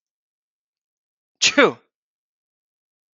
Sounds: Sneeze